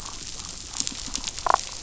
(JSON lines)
{"label": "biophony, damselfish", "recorder": "SoundTrap 500"}